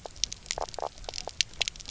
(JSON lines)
{"label": "biophony, knock croak", "recorder": "SoundTrap 300"}